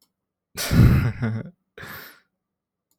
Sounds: Laughter